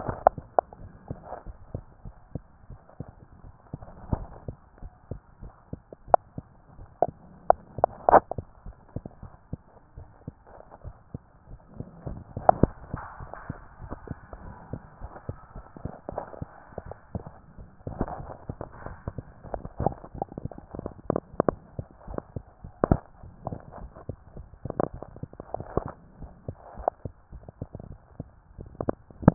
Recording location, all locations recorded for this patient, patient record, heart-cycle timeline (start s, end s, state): tricuspid valve (TV)
aortic valve (AV)+pulmonary valve (PV)+tricuspid valve (TV)+mitral valve (MV)
#Age: Child
#Sex: Female
#Height: 123.0 cm
#Weight: 31.2 kg
#Pregnancy status: False
#Murmur: Absent
#Murmur locations: nan
#Most audible location: nan
#Systolic murmur timing: nan
#Systolic murmur shape: nan
#Systolic murmur grading: nan
#Systolic murmur pitch: nan
#Systolic murmur quality: nan
#Diastolic murmur timing: nan
#Diastolic murmur shape: nan
#Diastolic murmur grading: nan
#Diastolic murmur pitch: nan
#Diastolic murmur quality: nan
#Outcome: Normal
#Campaign: 2015 screening campaign
0.00	0.78	unannotated
0.78	0.92	S1
0.92	1.08	systole
1.08	1.22	S2
1.22	1.44	diastole
1.44	1.58	S1
1.58	1.72	systole
1.72	1.86	S2
1.86	2.04	diastole
2.04	2.14	S1
2.14	2.34	systole
2.34	2.44	S2
2.44	2.68	diastole
2.68	2.78	S1
2.78	2.96	systole
2.96	3.08	S2
3.08	3.42	diastole
3.42	3.54	S1
3.54	3.71	systole
3.71	3.80	S2
3.80	4.46	unannotated
4.46	4.58	S2
4.58	4.80	diastole
4.80	4.92	S1
4.92	5.10	systole
5.10	5.20	S2
5.20	5.42	diastole
5.42	5.52	S1
5.52	5.72	systole
5.72	5.82	S2
5.82	6.06	diastole
6.06	6.18	S1
6.18	6.34	systole
6.34	6.48	S2
6.48	6.74	diastole
6.74	6.88	S1
6.88	7.02	systole
7.02	7.18	S2
7.18	7.44	diastole
7.44	7.60	S1
7.60	7.76	systole
7.76	7.90	S2
7.90	8.08	diastole
8.08	8.24	S1
8.24	8.36	systole
8.36	8.48	S2
8.48	8.63	diastole
8.63	8.74	S1
8.74	8.92	systole
8.92	9.04	S2
9.04	9.21	diastole
9.21	9.30	S1
9.30	9.48	systole
9.48	9.58	S2
9.58	29.34	unannotated